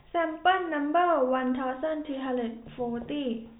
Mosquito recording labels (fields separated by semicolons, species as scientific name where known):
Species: no mosquito; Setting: cup